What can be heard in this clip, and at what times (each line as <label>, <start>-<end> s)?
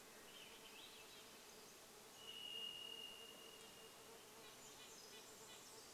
Swainson's Thrush song, 0-2 s
Red-breasted Nuthatch song, 0-6 s
insect buzz, 0-6 s
Varied Thrush song, 2-4 s
Pacific Wren song, 4-6 s